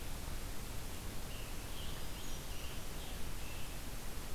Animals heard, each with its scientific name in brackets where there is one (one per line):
Scarlet Tanager (Piranga olivacea)
Hermit Thrush (Catharus guttatus)